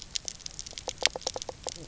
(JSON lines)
{"label": "biophony", "recorder": "SoundTrap 300"}